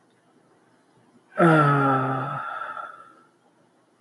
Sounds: Sigh